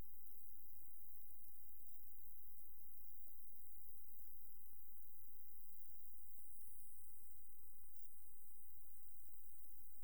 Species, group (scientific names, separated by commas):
Rhacocleis germanica, Orthoptera